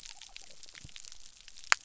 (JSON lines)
{"label": "biophony", "recorder": "SoundTrap 300"}